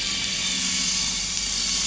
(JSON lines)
{"label": "anthrophony, boat engine", "recorder": "SoundTrap 500"}